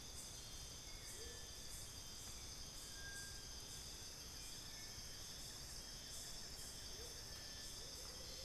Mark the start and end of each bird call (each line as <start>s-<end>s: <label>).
0.0s-1.5s: Amazonian Motmot (Momotus momota)
0.6s-8.4s: Hauxwell's Thrush (Turdus hauxwelli)
2.8s-7.8s: Buff-throated Woodcreeper (Xiphorhynchus guttatus)
6.8s-8.4s: Amazonian Motmot (Momotus momota)